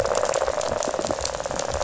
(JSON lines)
{"label": "biophony, rattle", "recorder": "SoundTrap 500"}